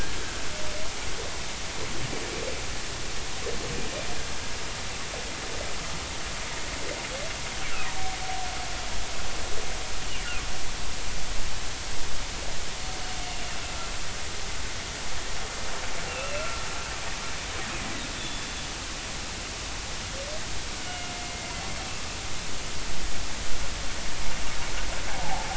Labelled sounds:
16.1	16.6	humpback whale, 1.3 to 2.8 kHz
18.1	18.5	humpback whale, 3.3 to 3.6 kHz
20.8	21.5	humpback whale, 2.0 to 2.9 kHz
25.2	25.5	humpback whale, 0.80 to 0.93 kHz

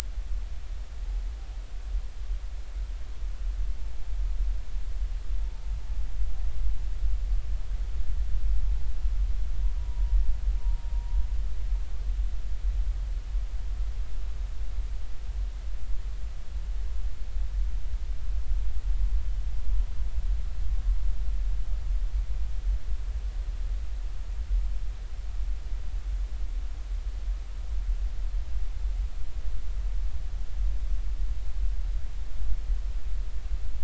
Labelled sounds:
9.8	10.9	humpback whale, 0.90 to 1.0 kHz

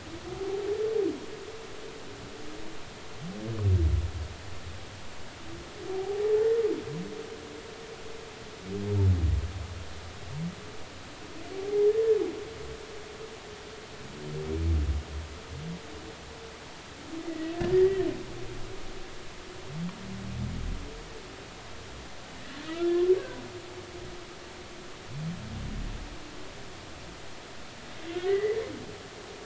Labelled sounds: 5.9	6.2	humpback whale, 0.80 to 0.86 kHz
11.5	11.9	humpback whale, 0.80 to 0.86 kHz
17.3	18.1	humpback whale, 1.7 to 2.1 kHz
22.7	22.9	humpback whale, 1.2 to 1.4 kHz
23.2	23.4	humpback whale, 1.5 to 1.7 kHz
28.1	28.6	humpback whale, 1.4 to 2.1 kHz

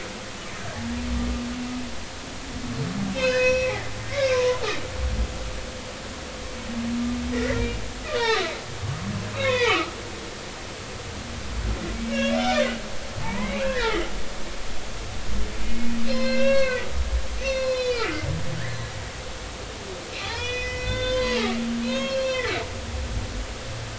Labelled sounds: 0.2	0.8	humpback whale, 2.9 to 3.2 kHz
3.1	4.6	humpback whale, 0.93 to 5.7 kHz
7.3	7.8	humpback whale, 1.8 to 2.4 kHz
8.1	9.9	humpback whale, 0.80 to 5.5 kHz
12.0	12.4	humpback whale, 1.6 to 2.9 kHz
13.2	14.1	humpback whale, 0.83 to 2.6 kHz
15.6	16.9	humpback whale, 0.99 to 4.4 kHz
17.4	18.1	humpback whale, 2.2 to 6.1 kHz
20.2	21.4	humpback whale, 0.80 to 6.1 kHz
21.8	22.6	humpback whale, 0.96 to 5.9 kHz

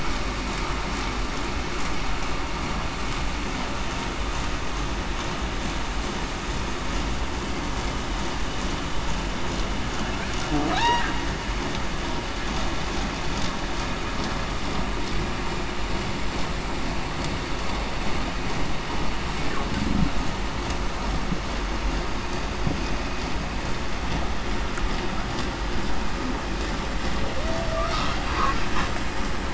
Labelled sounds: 10.7	11.0	humpback whale, 0.66 to 1.0 kHz
27.4	28.0	humpback whale, 0.58 to 0.75 kHz

